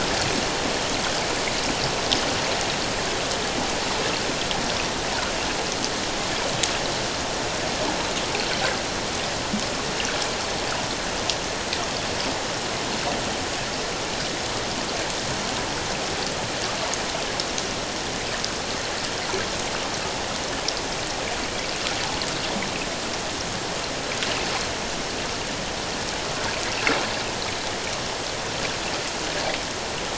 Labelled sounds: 21.4	21.7	water noise, 2.2 to 2.4 kHz

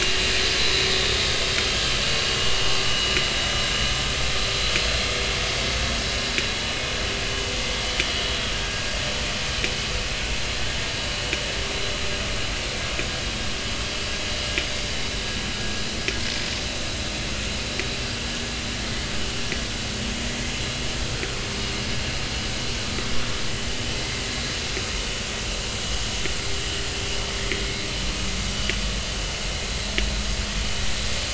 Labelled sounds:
2.8	3.1	vessel noise, 2.8 to 3.0 kHz

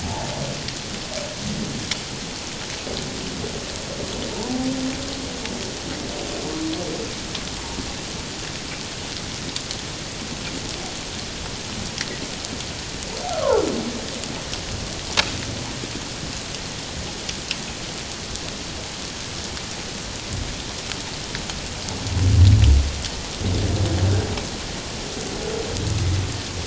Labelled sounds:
0.0	0.3	humpback whale, 0.78 to 0.97 kHz
13.3	13.6	humpback whale, 0.81 to 1.5 kHz

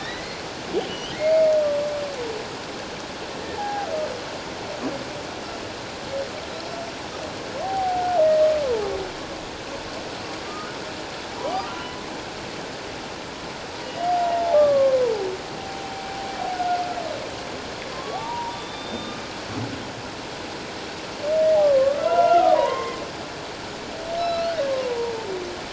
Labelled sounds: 0.0	1.5	humpback whale, 1.7 to 3.3 kHz
3.6	3.9	humpback whale, 0.78 to 1.7 kHz
7.6	8.0	humpback whale, 0.78 to 0.84 kHz
8.6	8.9	humpback whale, 0.78 to 1.1 kHz
10.4	11.7	humpback whale, 1.1 to 1.3 kHz
13.8	15.1	humpback whale, 0.78 to 2.9 kHz
17.9	19.2	humpback whale, 0.78 to 3.7 kHz
21.8	23.0	humpback whale, 0.88 to 2.8 kHz
24.2	25.3	humpback whale, 0.84 to 4.5 kHz

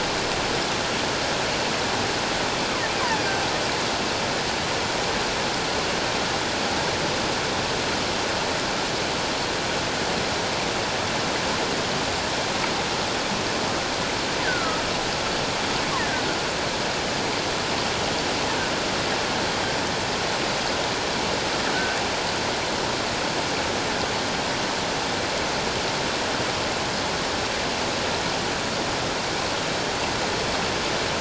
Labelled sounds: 14.4	14.8	killer whale, offshore, call OFF17, 1.2 to 1.9 kHz
16.0	16.2	killer whale, offshore, call OFF17, 1.4 to 2.1 kHz

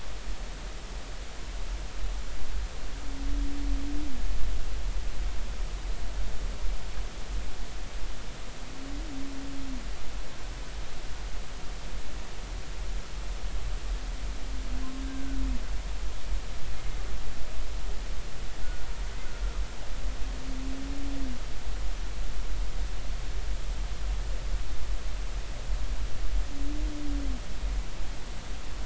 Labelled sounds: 15.0	15.4	humpback whale, 1.4 to 1.6 kHz

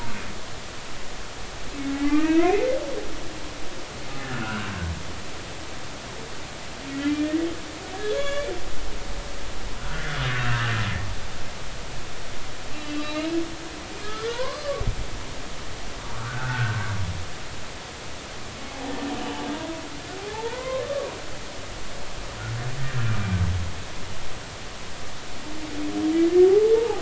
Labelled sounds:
1.9	2.6	humpback whale, 0.90 to 2.9 kHz
4.2	4.7	humpback whale, 1.3 to 2.9 kHz
6.9	7.5	humpback whale, 1.8 to 2.5 kHz
7.9	8.5	humpback whale, 1.0 to 3.6 kHz
9.8	10.7	humpback whale, 1.2 to 1.8 kHz
12.7	13.3	humpback whale, 2.6 to 4.2 kHz
14.3	14.8	humpback whale, 0.90 to 1.2 kHz
16.1	16.8	humpback whale, 1.1 to 1.7 kHz
19.2	20.8	humpback whale, 0.80 to 3.0 kHz
26.5	27.0	humpback whale, 0.80 to 0.96 kHz

